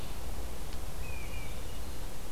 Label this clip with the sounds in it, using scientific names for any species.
Vireo olivaceus, Baeolophus bicolor